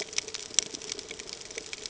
{"label": "ambient", "recorder": "HydroMoth"}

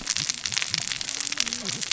{"label": "biophony, cascading saw", "recorder": "SoundTrap 600 or HydroMoth"}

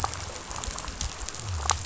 {"label": "biophony", "recorder": "SoundTrap 500"}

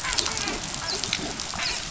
{"label": "biophony, dolphin", "recorder": "SoundTrap 500"}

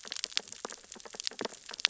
{"label": "biophony, sea urchins (Echinidae)", "recorder": "SoundTrap 600 or HydroMoth"}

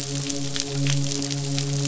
{"label": "biophony, midshipman", "recorder": "SoundTrap 500"}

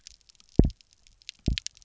{"label": "biophony, double pulse", "recorder": "SoundTrap 300"}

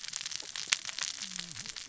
{"label": "biophony, cascading saw", "recorder": "SoundTrap 600 or HydroMoth"}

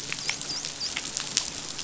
{"label": "biophony, dolphin", "recorder": "SoundTrap 500"}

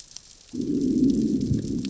{"label": "biophony, growl", "recorder": "SoundTrap 600 or HydroMoth"}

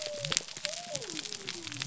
{"label": "biophony", "recorder": "SoundTrap 300"}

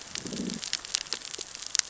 {"label": "biophony, growl", "recorder": "SoundTrap 600 or HydroMoth"}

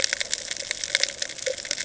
{"label": "ambient", "recorder": "HydroMoth"}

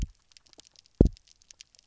{"label": "biophony, double pulse", "recorder": "SoundTrap 300"}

